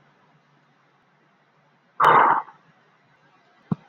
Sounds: Sigh